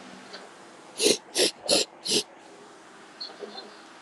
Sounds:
Sniff